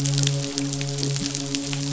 {"label": "biophony, midshipman", "recorder": "SoundTrap 500"}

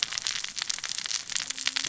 {"label": "biophony, cascading saw", "recorder": "SoundTrap 600 or HydroMoth"}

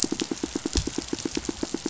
{"label": "biophony, pulse", "recorder": "SoundTrap 500"}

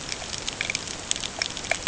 {"label": "ambient", "recorder": "HydroMoth"}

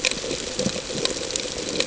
{"label": "ambient", "recorder": "HydroMoth"}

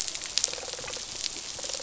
{"label": "biophony", "recorder": "SoundTrap 500"}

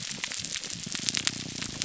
{"label": "biophony, grouper groan", "recorder": "SoundTrap 300"}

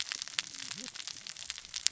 {"label": "biophony, cascading saw", "recorder": "SoundTrap 600 or HydroMoth"}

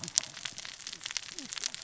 {"label": "biophony, cascading saw", "recorder": "SoundTrap 600 or HydroMoth"}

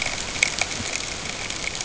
{"label": "ambient", "recorder": "HydroMoth"}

